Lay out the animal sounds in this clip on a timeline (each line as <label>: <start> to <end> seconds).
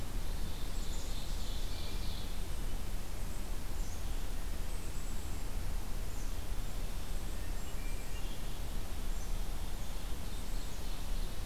Ovenbird (Seiurus aurocapilla): 0.0 to 2.5 seconds
Black-capped Chickadee (Poecile atricapillus): 0.8 to 1.6 seconds
Black-capped Chickadee (Poecile atricapillus): 3.6 to 4.4 seconds
Black-capped Chickadee (Poecile atricapillus): 4.7 to 5.3 seconds
Black-capped Chickadee (Poecile atricapillus): 6.1 to 7.1 seconds
Hermit Thrush (Catharus guttatus): 7.2 to 8.8 seconds
Black-capped Chickadee (Poecile atricapillus): 7.9 to 8.7 seconds
Ovenbird (Seiurus aurocapilla): 9.2 to 11.5 seconds
Black-capped Chickadee (Poecile atricapillus): 10.2 to 11.4 seconds